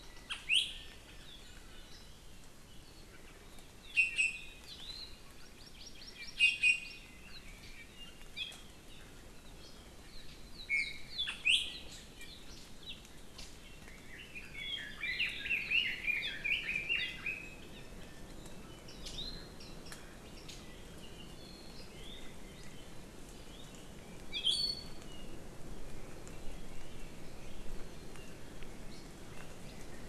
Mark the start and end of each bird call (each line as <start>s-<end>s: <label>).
0.0s-2.0s: Apapane (Himatione sanguinea)
0.2s-0.7s: Iiwi (Drepanis coccinea)
3.9s-5.1s: Iiwi (Drepanis coccinea)
5.3s-6.9s: Hawaii Amakihi (Chlorodrepanis virens)
6.3s-7.0s: Iiwi (Drepanis coccinea)
10.7s-11.8s: Iiwi (Drepanis coccinea)
13.8s-17.8s: Red-billed Leiothrix (Leiothrix lutea)
18.9s-19.5s: Iiwi (Drepanis coccinea)
24.3s-25.0s: Iiwi (Drepanis coccinea)